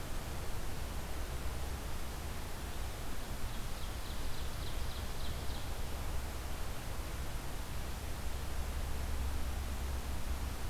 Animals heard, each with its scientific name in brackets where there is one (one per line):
Ovenbird (Seiurus aurocapilla)